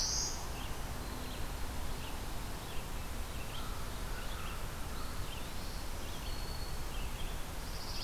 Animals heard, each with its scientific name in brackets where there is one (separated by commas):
Black-throated Green Warbler (Setophaga virens), Eastern Wood-Pewee (Contopus virens), Red-eyed Vireo (Vireo olivaceus)